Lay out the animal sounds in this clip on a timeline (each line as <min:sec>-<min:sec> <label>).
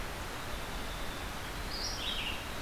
0:00.0-0:02.6 Red-eyed Vireo (Vireo olivaceus)